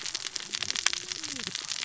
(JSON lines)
{"label": "biophony, cascading saw", "recorder": "SoundTrap 600 or HydroMoth"}